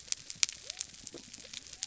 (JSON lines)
{"label": "biophony", "recorder": "SoundTrap 300"}